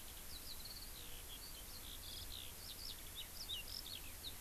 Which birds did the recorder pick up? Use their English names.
Eurasian Skylark